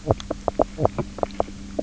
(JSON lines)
{"label": "biophony, knock croak", "recorder": "SoundTrap 300"}